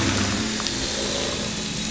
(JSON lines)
{"label": "anthrophony, boat engine", "recorder": "SoundTrap 500"}